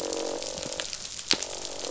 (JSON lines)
{"label": "biophony, croak", "recorder": "SoundTrap 500"}